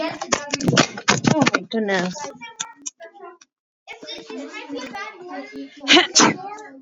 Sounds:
Sneeze